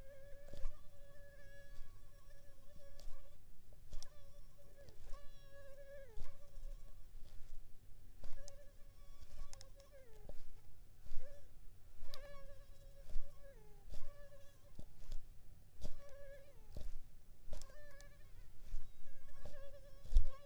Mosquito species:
Culex pipiens complex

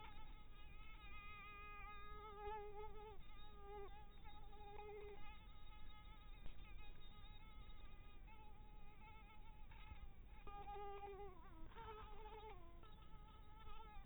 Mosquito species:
mosquito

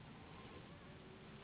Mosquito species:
Anopheles gambiae s.s.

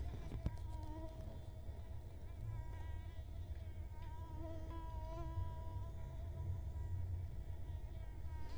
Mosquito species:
Culex quinquefasciatus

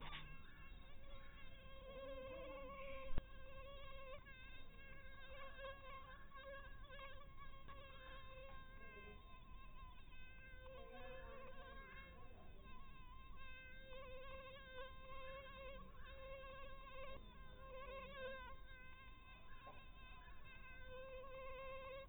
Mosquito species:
mosquito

